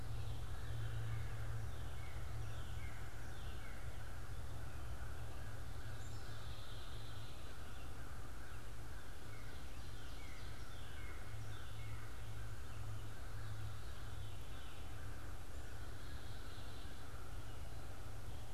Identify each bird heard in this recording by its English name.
American Crow, Black-capped Chickadee, Northern Cardinal